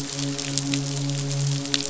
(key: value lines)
label: biophony, midshipman
recorder: SoundTrap 500